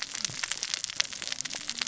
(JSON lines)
{"label": "biophony, cascading saw", "recorder": "SoundTrap 600 or HydroMoth"}